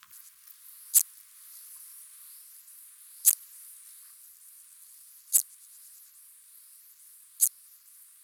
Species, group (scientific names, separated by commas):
Psorodonotus macedonicus, Orthoptera